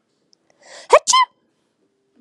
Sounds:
Sneeze